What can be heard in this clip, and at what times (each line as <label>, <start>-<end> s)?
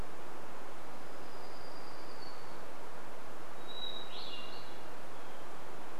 warbler song, 0-4 s
Hermit Thrush song, 2-6 s